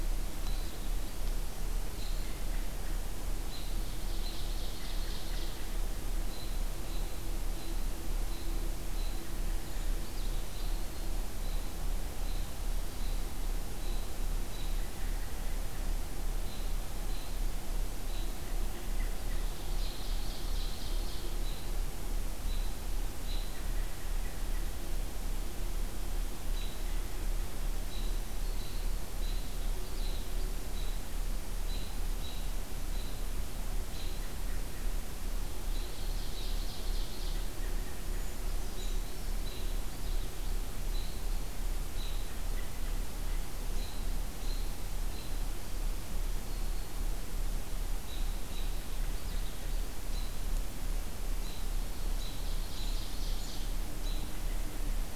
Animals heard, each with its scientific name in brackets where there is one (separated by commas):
Ovenbird (Seiurus aurocapilla), Brown Creeper (Certhia americana), Black-throated Green Warbler (Setophaga virens), Eastern Wood-Pewee (Contopus virens), Purple Finch (Haemorhous purpureus), American Robin (Turdus migratorius)